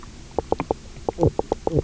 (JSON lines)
{"label": "biophony, knock croak", "recorder": "SoundTrap 300"}